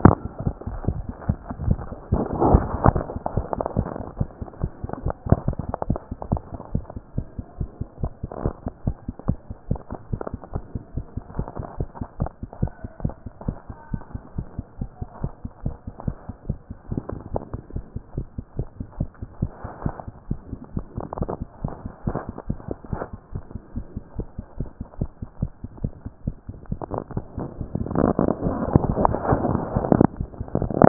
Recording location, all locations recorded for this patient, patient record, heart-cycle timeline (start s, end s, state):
mitral valve (MV)
aortic valve (AV)+pulmonary valve (PV)+tricuspid valve (TV)+mitral valve (MV)
#Age: Adolescent
#Sex: Female
#Height: 163.0 cm
#Weight: 45.8 kg
#Pregnancy status: False
#Murmur: Absent
#Murmur locations: nan
#Most audible location: nan
#Systolic murmur timing: nan
#Systolic murmur shape: nan
#Systolic murmur grading: nan
#Systolic murmur pitch: nan
#Systolic murmur quality: nan
#Diastolic murmur timing: nan
#Diastolic murmur shape: nan
#Diastolic murmur grading: nan
#Diastolic murmur pitch: nan
#Diastolic murmur quality: nan
#Outcome: Abnormal
#Campaign: 2014 screening campaign
0.00	6.30	unannotated
6.30	6.42	S1
6.42	6.52	systole
6.52	6.58	S2
6.58	6.74	diastole
6.74	6.84	S1
6.84	6.94	systole
6.94	7.02	S2
7.02	7.16	diastole
7.16	7.26	S1
7.26	7.36	systole
7.36	7.44	S2
7.44	7.58	diastole
7.58	7.70	S1
7.70	7.78	systole
7.78	7.88	S2
7.88	8.02	diastole
8.02	8.12	S1
8.12	8.22	systole
8.22	8.30	S2
8.30	8.42	diastole
8.42	8.54	S1
8.54	8.64	systole
8.64	8.72	S2
8.72	8.86	diastole
8.86	8.96	S1
8.96	9.06	systole
9.06	9.14	S2
9.14	9.28	diastole
9.28	9.38	S1
9.38	9.48	systole
9.48	9.56	S2
9.56	9.70	diastole
9.70	9.80	S1
9.80	9.90	systole
9.90	9.98	S2
9.98	10.12	diastole
10.12	10.20	S1
10.20	10.30	systole
10.30	10.40	S2
10.40	10.54	diastole
10.54	10.64	S1
10.64	10.74	systole
10.74	10.82	S2
10.82	10.96	diastole
10.96	11.06	S1
11.06	11.16	systole
11.16	11.22	S2
11.22	11.36	diastole
11.36	11.48	S1
11.48	11.58	systole
11.58	11.66	S2
11.66	11.78	diastole
11.78	11.88	S1
11.88	11.98	systole
11.98	12.06	S2
12.06	12.20	diastole
12.20	12.30	S1
12.30	12.40	systole
12.40	12.48	S2
12.48	12.62	diastole
12.62	12.72	S1
12.72	12.82	systole
12.82	12.88	S2
12.88	13.02	diastole
13.02	13.14	S1
13.14	13.24	systole
13.24	13.32	S2
13.32	13.46	diastole
13.46	13.56	S1
13.56	13.68	systole
13.68	13.76	S2
13.76	13.92	diastole
13.92	14.02	S1
14.02	14.12	systole
14.12	14.22	S2
14.22	14.36	diastole
14.36	14.46	S1
14.46	14.56	systole
14.56	14.66	S2
14.66	14.80	diastole
14.80	14.90	S1
14.90	15.00	systole
15.00	15.08	S2
15.08	15.22	diastole
15.22	15.32	S1
15.32	15.42	systole
15.42	15.50	S2
15.50	15.64	diastole
15.64	15.74	S1
15.74	15.86	systole
15.86	15.94	S2
15.94	16.06	diastole
16.06	16.16	S1
16.16	16.28	systole
16.28	16.34	S2
16.34	16.48	diastole
16.48	16.58	S1
16.58	16.68	systole
16.68	16.76	S2
16.76	16.90	diastole
16.90	17.02	S1
17.02	17.10	systole
17.10	17.20	S2
17.20	17.32	diastole
17.32	17.42	S1
17.42	17.52	systole
17.52	17.60	S2
17.60	17.74	diastole
17.74	17.84	S1
17.84	17.94	systole
17.94	18.02	S2
18.02	18.16	diastole
18.16	18.26	S1
18.26	18.36	systole
18.36	18.44	S2
18.44	18.58	diastole
18.58	18.68	S1
18.68	18.78	systole
18.78	18.86	S2
18.86	18.98	diastole
18.98	19.10	S1
19.10	19.20	systole
19.20	19.28	S2
19.28	19.42	diastole
19.42	19.50	S1
19.50	19.62	systole
19.62	19.70	S2
19.70	19.84	diastole
19.84	19.94	S1
19.94	20.04	systole
20.04	20.14	S2
20.14	20.28	diastole
20.28	20.38	S1
20.38	20.50	systole
20.50	20.60	S2
20.60	20.74	diastole
20.74	30.88	unannotated